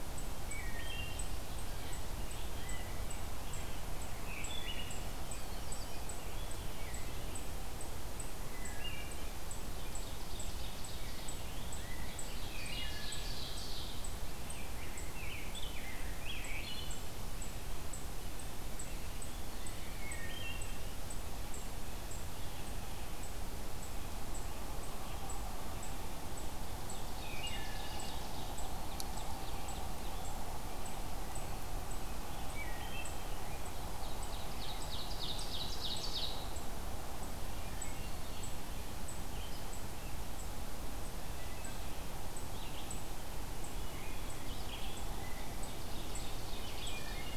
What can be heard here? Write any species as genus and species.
unknown mammal, Hylocichla mustelina, Setophaga caerulescens, Contopus virens, Seiurus aurocapilla, Pheucticus ludovicianus, Vireo olivaceus